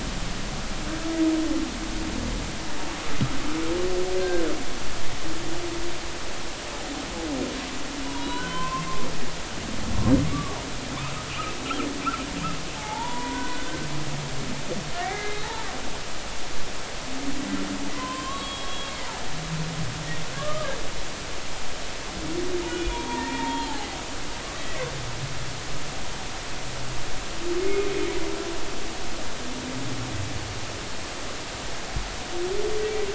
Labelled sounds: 8.1	8.9	humpback whale, 0.90 to 4.0 kHz
10.3	10.6	humpback whale, 1.1 to 1.2 kHz
12.8	14.4	humpback whale, 0.80 to 2.0 kHz
14.9	15.5	humpback whale, 1.6 to 3.9 kHz
17.9	18.9	humpback whale, 0.96 to 3.4 kHz
20.4	20.7	humpback whale, 1.1 to 1.3 kHz
22.6	24.0	humpback whale, 0.80 to 3.5 kHz
27.6	27.9	humpback whale, 2.1 to 2.3 kHz

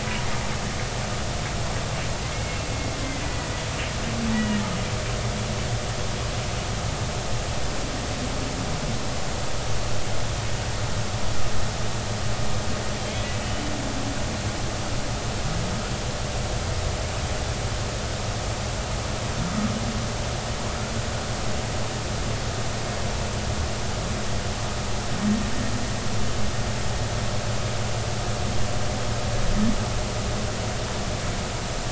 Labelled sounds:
2.2	3.5	humpback whale, 1.9 to 2.3 kHz
4.3	4.6	humpback whale, 1.8 to 2.0 kHz

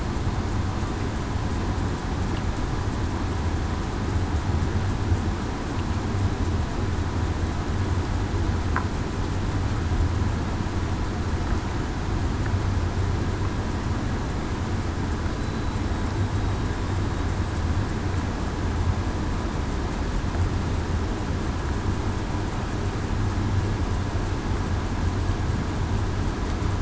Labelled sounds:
15.4	15.8	killer whale, southern resident, 3.9 to 4.0 kHz

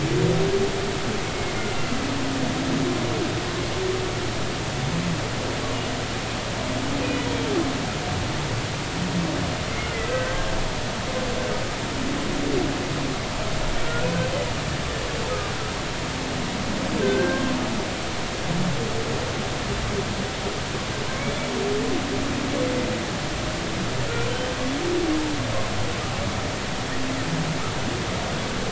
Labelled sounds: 10.1	10.5	humpback whale, 1.5 to 1.6 kHz
13.8	14.1	humpback whale, 1.3 to 1.5 kHz
17.0	17.4	humpback whale, 1.5 to 1.7 kHz
24.3	24.5	humpback whale, 3.0 to 3.1 kHz

